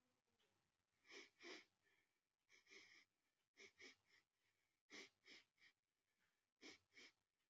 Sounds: Sniff